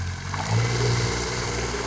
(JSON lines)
{"label": "anthrophony, boat engine", "recorder": "SoundTrap 300"}